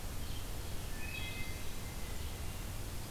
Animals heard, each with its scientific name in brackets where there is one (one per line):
Red-eyed Vireo (Vireo olivaceus)
Wood Thrush (Hylocichla mustelina)